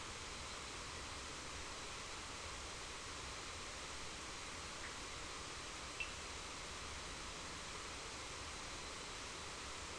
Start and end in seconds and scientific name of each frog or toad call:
5.9	6.1	Sphaenorhynchus surdus